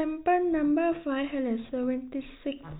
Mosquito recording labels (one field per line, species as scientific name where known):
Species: no mosquito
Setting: cup